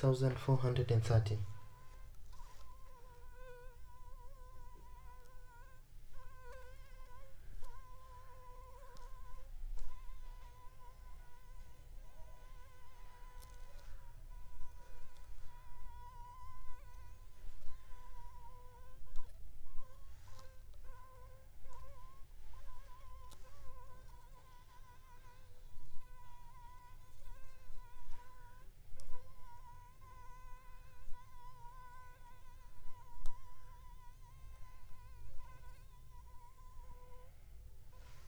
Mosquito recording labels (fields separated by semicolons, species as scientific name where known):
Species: Anopheles funestus s.s.; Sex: female; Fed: blood-fed; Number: one; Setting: cup